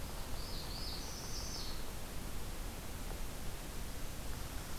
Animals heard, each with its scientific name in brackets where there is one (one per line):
Northern Parula (Setophaga americana)